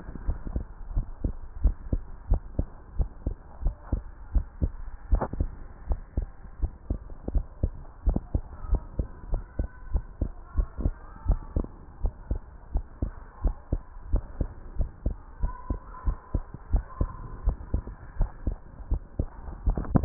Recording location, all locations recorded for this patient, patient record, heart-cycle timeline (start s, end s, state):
tricuspid valve (TV)
aortic valve (AV)+pulmonary valve (PV)+tricuspid valve (TV)+mitral valve (MV)
#Age: Adolescent
#Sex: Male
#Height: 139.0 cm
#Weight: 32.9 kg
#Pregnancy status: False
#Murmur: Absent
#Murmur locations: nan
#Most audible location: nan
#Systolic murmur timing: nan
#Systolic murmur shape: nan
#Systolic murmur grading: nan
#Systolic murmur pitch: nan
#Systolic murmur quality: nan
#Diastolic murmur timing: nan
#Diastolic murmur shape: nan
#Diastolic murmur grading: nan
#Diastolic murmur pitch: nan
#Diastolic murmur quality: nan
#Outcome: Normal
#Campaign: 2015 screening campaign
0.00	2.04	unannotated
2.04	2.28	diastole
2.28	2.42	S1
2.42	2.54	systole
2.54	2.66	S2
2.66	2.96	diastole
2.96	3.10	S1
3.10	3.22	systole
3.22	3.36	S2
3.36	3.64	diastole
3.64	3.76	S1
3.76	3.90	systole
3.90	4.04	S2
4.04	4.32	diastole
4.32	4.44	S1
4.44	4.60	systole
4.60	4.74	S2
4.74	5.06	diastole
5.06	5.22	S1
5.22	5.38	systole
5.38	5.52	S2
5.52	5.86	diastole
5.86	6.02	S1
6.02	6.18	systole
6.18	6.30	S2
6.30	6.60	diastole
6.60	6.72	S1
6.72	6.86	systole
6.86	6.98	S2
6.98	7.28	diastole
7.28	7.44	S1
7.44	7.62	systole
7.62	7.74	S2
7.74	8.06	diastole
8.06	8.20	S1
8.20	8.30	systole
8.30	8.42	S2
8.42	8.70	diastole
8.70	8.84	S1
8.84	8.98	systole
8.98	9.06	S2
9.06	9.30	diastole
9.30	9.44	S1
9.44	9.58	systole
9.58	9.70	S2
9.70	9.94	diastole
9.94	10.06	S1
10.06	10.20	systole
10.20	10.32	S2
10.32	10.56	diastole
10.56	10.68	S1
10.68	10.80	systole
10.80	10.96	S2
10.96	11.26	diastole
11.26	11.42	S1
11.42	11.54	systole
11.54	11.68	S2
11.68	12.02	diastole
12.02	12.14	S1
12.14	12.30	systole
12.30	12.42	S2
12.42	12.72	diastole
12.72	12.86	S1
12.86	12.98	systole
12.98	13.10	S2
13.10	13.42	diastole
13.42	13.56	S1
13.56	13.68	systole
13.68	13.80	S2
13.80	14.08	diastole
14.08	14.22	S1
14.22	14.36	systole
14.36	14.48	S2
14.48	14.78	diastole
14.78	14.90	S1
14.90	15.04	systole
15.04	15.18	S2
15.18	15.42	diastole
15.42	15.54	S1
15.54	15.66	systole
15.66	15.78	S2
15.78	16.06	diastole
16.06	16.16	S1
16.16	16.30	systole
16.30	16.42	S2
16.42	16.68	diastole
16.68	16.82	S1
16.82	16.98	systole
16.98	17.12	S2
17.12	17.44	diastole
17.44	17.58	S1
17.58	17.72	systole
17.72	17.86	S2
17.86	18.18	diastole
18.18	18.32	S1
18.32	18.46	systole
18.46	18.58	S2
18.58	18.86	diastole
18.86	19.00	S1
19.00	19.18	systole
19.18	19.30	S2
19.30	19.64	diastole
19.64	20.05	unannotated